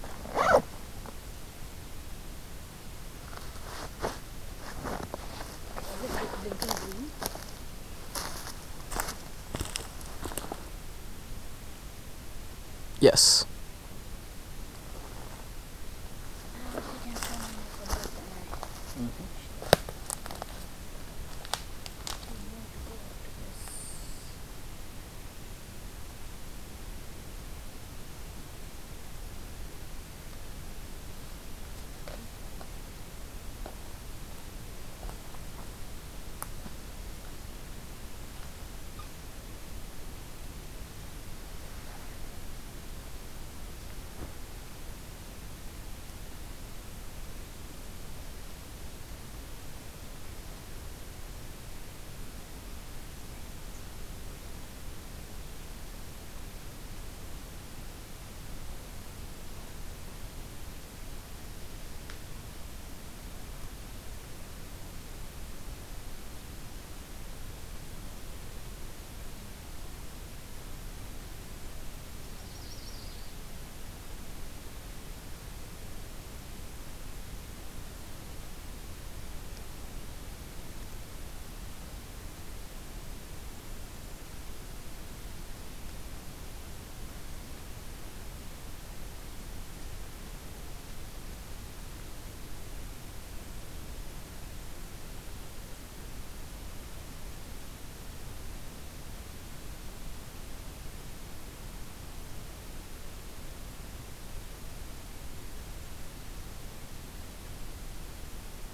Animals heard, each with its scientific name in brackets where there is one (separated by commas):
Yellow-rumped Warbler (Setophaga coronata)